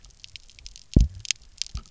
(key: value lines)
label: biophony, double pulse
recorder: SoundTrap 300